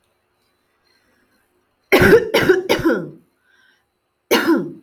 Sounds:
Cough